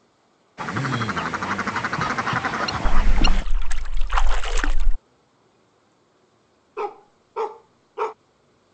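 First, you can hear a bird. While that goes on, splashing is heard. Then a dog barks.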